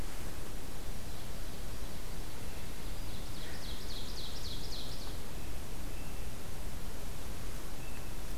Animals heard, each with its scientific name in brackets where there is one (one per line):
Ovenbird (Seiurus aurocapilla)